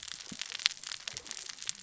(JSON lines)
{"label": "biophony, cascading saw", "recorder": "SoundTrap 600 or HydroMoth"}